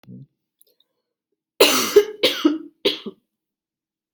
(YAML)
expert_labels:
- quality: ok
  cough_type: dry
  dyspnea: false
  wheezing: false
  stridor: false
  choking: false
  congestion: false
  nothing: true
  diagnosis: lower respiratory tract infection
  severity: mild
- quality: good
  cough_type: dry
  dyspnea: false
  wheezing: false
  stridor: false
  choking: false
  congestion: false
  nothing: true
  diagnosis: COVID-19
  severity: mild
- quality: good
  cough_type: wet
  dyspnea: false
  wheezing: false
  stridor: false
  choking: false
  congestion: false
  nothing: true
  diagnosis: healthy cough
  severity: pseudocough/healthy cough
- quality: good
  cough_type: dry
  dyspnea: false
  wheezing: false
  stridor: false
  choking: false
  congestion: false
  nothing: true
  diagnosis: upper respiratory tract infection
  severity: mild
age: 30
gender: female
respiratory_condition: false
fever_muscle_pain: true
status: symptomatic